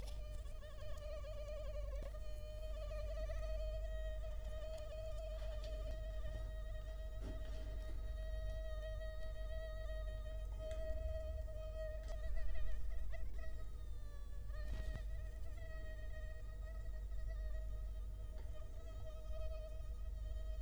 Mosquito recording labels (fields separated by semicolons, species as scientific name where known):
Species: Culex quinquefasciatus; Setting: cup